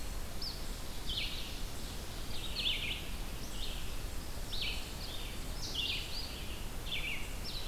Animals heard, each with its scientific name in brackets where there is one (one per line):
Red-eyed Vireo (Vireo olivaceus)